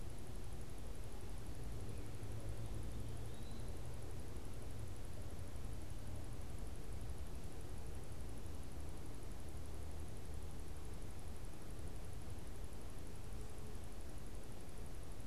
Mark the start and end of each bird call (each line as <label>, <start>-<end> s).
Eastern Wood-Pewee (Contopus virens), 0.0-4.1 s